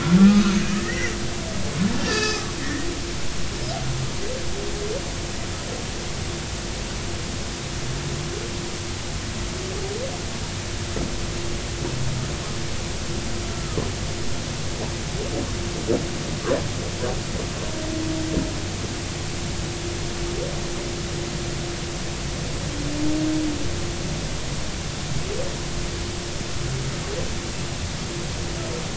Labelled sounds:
0.2	1.1	humpback whale, 1.2 to 2.6 kHz
1.9	2.9	humpback whale, 1.1 to 4.9 kHz
13.5	13.8	humpback whale, 1.2 to 1.4 kHz

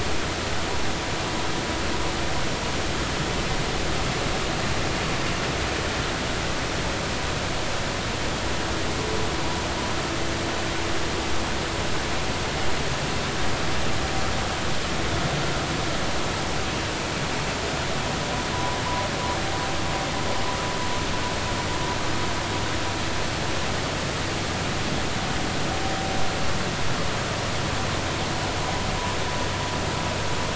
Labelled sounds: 18.5	18.8	vessel noise, 0.93 to 1.1 kHz

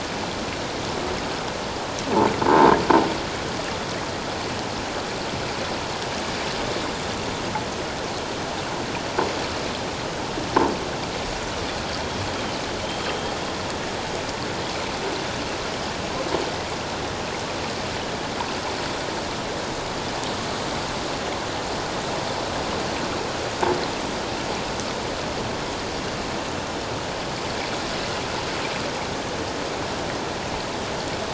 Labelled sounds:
12.8	13.3	killer whale, 3.1 to 3.2 kHz

